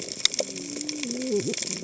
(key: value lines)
label: biophony, cascading saw
recorder: HydroMoth